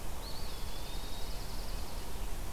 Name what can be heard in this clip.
Eastern Wood-Pewee, Dark-eyed Junco